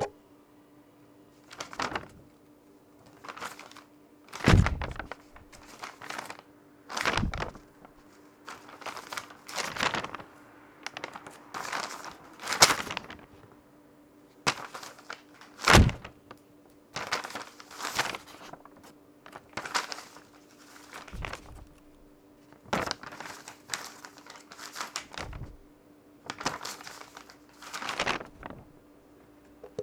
Is someone handling paper?
yes